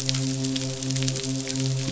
{"label": "biophony, midshipman", "recorder": "SoundTrap 500"}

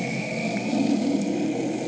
{"label": "anthrophony, boat engine", "recorder": "HydroMoth"}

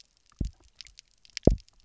{"label": "biophony, double pulse", "recorder": "SoundTrap 300"}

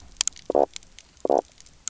{"label": "biophony, knock croak", "recorder": "SoundTrap 300"}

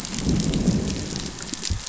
{"label": "biophony, growl", "recorder": "SoundTrap 500"}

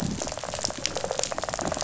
{"label": "biophony, rattle response", "recorder": "SoundTrap 500"}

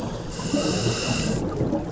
{"label": "anthrophony, boat engine", "recorder": "SoundTrap 300"}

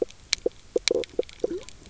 {"label": "biophony, knock croak", "recorder": "SoundTrap 300"}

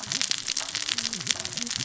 {"label": "biophony, cascading saw", "recorder": "SoundTrap 600 or HydroMoth"}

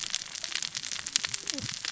{"label": "biophony, cascading saw", "recorder": "SoundTrap 600 or HydroMoth"}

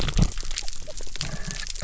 {"label": "biophony", "recorder": "SoundTrap 300"}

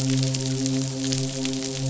{"label": "biophony, midshipman", "recorder": "SoundTrap 500"}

